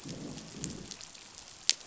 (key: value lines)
label: biophony, growl
recorder: SoundTrap 500